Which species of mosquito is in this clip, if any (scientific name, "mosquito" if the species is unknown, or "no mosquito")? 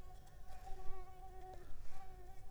Mansonia uniformis